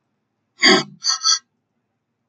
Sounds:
Sniff